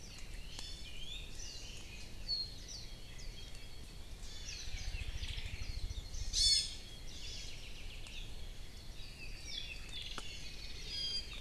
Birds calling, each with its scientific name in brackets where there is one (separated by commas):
Apapane (Himatione sanguinea), Iiwi (Drepanis coccinea), Warbling White-eye (Zosterops japonicus)